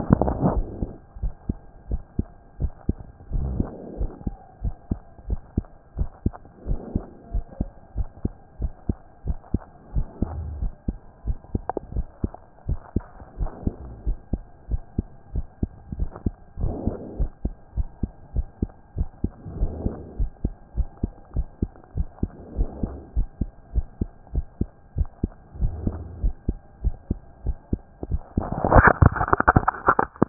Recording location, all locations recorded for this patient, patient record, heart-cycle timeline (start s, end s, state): mitral valve (MV)
aortic valve (AV)+pulmonary valve (PV)+tricuspid valve (TV)+mitral valve (MV)
#Age: Child
#Sex: Male
#Height: 128.0 cm
#Weight: 24.1 kg
#Pregnancy status: False
#Murmur: Absent
#Murmur locations: nan
#Most audible location: nan
#Systolic murmur timing: nan
#Systolic murmur shape: nan
#Systolic murmur grading: nan
#Systolic murmur pitch: nan
#Systolic murmur quality: nan
#Diastolic murmur timing: nan
#Diastolic murmur shape: nan
#Diastolic murmur grading: nan
#Diastolic murmur pitch: nan
#Diastolic murmur quality: nan
#Outcome: Abnormal
#Campaign: 2014 screening campaign
0.00	1.22	unannotated
1.22	1.32	S1
1.32	1.48	systole
1.48	1.56	S2
1.56	1.90	diastole
1.90	2.02	S1
2.02	2.18	systole
2.18	2.26	S2
2.26	2.60	diastole
2.60	2.72	S1
2.72	2.88	systole
2.88	2.96	S2
2.96	3.32	diastole
3.32	3.45	S1
3.45	3.60	systole
3.60	3.72	S2
3.72	3.98	diastole
3.98	4.10	S1
4.10	4.24	systole
4.24	4.34	S2
4.34	4.62	diastole
4.62	4.74	S1
4.74	4.90	systole
4.90	5.00	S2
5.00	5.28	diastole
5.28	5.40	S1
5.40	5.56	systole
5.56	5.64	S2
5.64	5.98	diastole
5.98	6.08	S1
6.08	6.24	systole
6.24	6.34	S2
6.34	6.68	diastole
6.68	6.80	S1
6.80	6.94	systole
6.94	7.04	S2
7.04	7.32	diastole
7.32	7.44	S1
7.44	7.58	systole
7.58	7.68	S2
7.68	7.96	diastole
7.96	8.08	S1
8.08	8.24	systole
8.24	8.32	S2
8.32	8.60	diastole
8.60	8.72	S1
8.72	8.88	systole
8.88	8.96	S2
8.96	9.26	diastole
9.26	9.38	S1
9.38	9.52	systole
9.52	9.62	S2
9.62	9.94	diastole
9.94	10.06	S1
10.06	10.20	systole
10.20	10.30	S2
10.30	10.60	diastole
10.60	10.72	S1
10.72	10.86	systole
10.86	10.98	S2
10.98	11.26	diastole
11.26	11.36	S1
11.36	11.52	systole
11.52	11.62	S2
11.62	11.94	diastole
11.94	12.06	S1
12.06	12.22	systole
12.22	12.32	S2
12.32	12.68	diastole
12.68	12.78	S1
12.78	12.94	systole
12.94	13.04	S2
13.04	13.38	diastole
13.38	13.50	S1
13.50	13.64	systole
13.64	13.74	S2
13.74	14.06	diastole
14.06	14.18	S1
14.18	14.32	systole
14.32	14.42	S2
14.42	14.70	diastole
14.70	14.82	S1
14.82	14.96	systole
14.96	15.06	S2
15.06	15.34	diastole
15.34	15.46	S1
15.46	15.62	systole
15.62	15.70	S2
15.70	15.98	diastole
15.98	16.10	S1
16.10	16.24	systole
16.24	16.34	S2
16.34	16.60	diastole
16.60	16.74	S1
16.74	16.86	systole
16.86	16.96	S2
16.96	17.18	diastole
17.18	17.30	S1
17.30	17.44	systole
17.44	17.54	S2
17.54	17.76	diastole
17.76	17.88	S1
17.88	18.02	systole
18.02	18.10	S2
18.10	18.34	diastole
18.34	18.46	S1
18.46	18.60	systole
18.60	18.70	S2
18.70	18.96	diastole
18.96	19.08	S1
19.08	19.22	systole
19.22	19.32	S2
19.32	19.58	diastole
19.58	19.72	S1
19.72	19.84	systole
19.84	19.94	S2
19.94	20.18	diastole
20.18	20.30	S1
20.30	20.44	systole
20.44	20.54	S2
20.54	20.76	diastole
20.76	20.88	S1
20.88	21.02	systole
21.02	21.12	S2
21.12	21.36	diastole
21.36	21.46	S1
21.46	21.60	systole
21.60	21.70	S2
21.70	21.96	diastole
21.96	22.08	S1
22.08	22.22	systole
22.22	22.30	S2
22.30	22.56	diastole
22.56	22.68	S1
22.68	22.82	systole
22.82	22.92	S2
22.92	23.16	diastole
23.16	23.28	S1
23.28	23.40	systole
23.40	23.50	S2
23.50	23.74	diastole
23.74	23.86	S1
23.86	24.00	systole
24.00	24.10	S2
24.10	24.34	diastole
24.34	24.46	S1
24.46	24.60	systole
24.60	24.68	S2
24.68	24.96	diastole
24.96	25.08	S1
25.08	25.22	systole
25.22	25.30	S2
25.30	25.60	diastole
25.60	25.74	S1
25.74	25.84	systole
25.84	25.96	S2
25.96	26.22	diastole
26.22	26.34	S1
26.34	26.48	systole
26.48	26.58	S2
26.58	26.84	diastole
26.84	26.94	S1
26.94	27.10	systole
27.10	27.18	S2
27.18	27.46	diastole
27.46	27.56	S1
27.56	27.72	systole
27.72	27.80	S2
27.80	28.10	diastole
28.10	30.29	unannotated